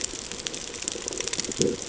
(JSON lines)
{"label": "ambient", "recorder": "HydroMoth"}